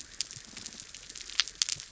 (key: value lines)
label: biophony
recorder: SoundTrap 300